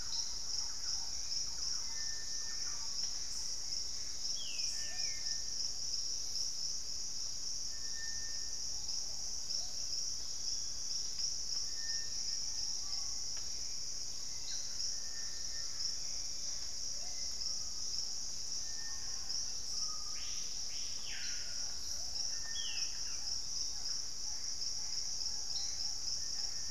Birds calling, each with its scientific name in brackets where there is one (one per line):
Screaming Piha (Lipaugus vociferans)
Plumbeous Pigeon (Patagioenas plumbea)
Collared Trogon (Trogon collaris)
Ringed Antpipit (Corythopis torquatus)
Thrush-like Wren (Campylorhynchus turdinus)
Hauxwell's Thrush (Turdus hauxwelli)
Gray Antbird (Cercomacra cinerascens)